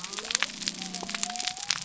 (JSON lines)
{"label": "biophony", "recorder": "SoundTrap 300"}